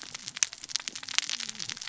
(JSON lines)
{"label": "biophony, cascading saw", "recorder": "SoundTrap 600 or HydroMoth"}